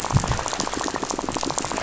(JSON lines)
{"label": "biophony, rattle", "recorder": "SoundTrap 500"}